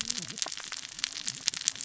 {"label": "biophony, cascading saw", "recorder": "SoundTrap 600 or HydroMoth"}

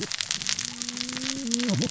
{"label": "biophony, cascading saw", "recorder": "SoundTrap 600 or HydroMoth"}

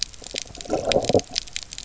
{"label": "biophony, low growl", "recorder": "SoundTrap 300"}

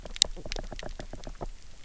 {"label": "biophony, knock", "recorder": "SoundTrap 300"}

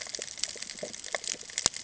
{"label": "ambient", "recorder": "HydroMoth"}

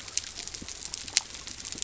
{"label": "biophony", "recorder": "SoundTrap 300"}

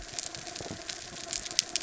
{"label": "anthrophony, mechanical", "recorder": "SoundTrap 300"}
{"label": "biophony", "recorder": "SoundTrap 300"}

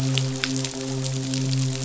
{"label": "biophony, midshipman", "recorder": "SoundTrap 500"}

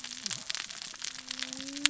{"label": "biophony, cascading saw", "recorder": "SoundTrap 600 or HydroMoth"}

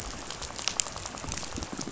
{"label": "biophony, rattle", "recorder": "SoundTrap 500"}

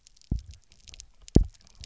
{"label": "biophony, double pulse", "recorder": "SoundTrap 300"}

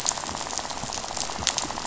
{"label": "biophony, rattle", "recorder": "SoundTrap 500"}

